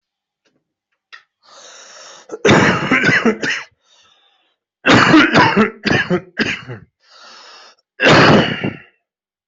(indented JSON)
{
  "expert_labels": [
    {
      "quality": "ok",
      "cough_type": "wet",
      "dyspnea": false,
      "wheezing": false,
      "stridor": false,
      "choking": false,
      "congestion": false,
      "nothing": true,
      "diagnosis": "lower respiratory tract infection",
      "severity": "mild"
    },
    {
      "quality": "good",
      "cough_type": "wet",
      "dyspnea": false,
      "wheezing": true,
      "stridor": false,
      "choking": false,
      "congestion": false,
      "nothing": false,
      "diagnosis": "obstructive lung disease",
      "severity": "mild"
    },
    {
      "quality": "good",
      "cough_type": "wet",
      "dyspnea": false,
      "wheezing": false,
      "stridor": false,
      "choking": false,
      "congestion": false,
      "nothing": true,
      "diagnosis": "upper respiratory tract infection",
      "severity": "mild"
    },
    {
      "quality": "good",
      "cough_type": "wet",
      "dyspnea": false,
      "wheezing": false,
      "stridor": false,
      "choking": false,
      "congestion": false,
      "nothing": true,
      "diagnosis": "lower respiratory tract infection",
      "severity": "mild"
    }
  ],
  "age": 30,
  "gender": "male",
  "respiratory_condition": false,
  "fever_muscle_pain": true,
  "status": "healthy"
}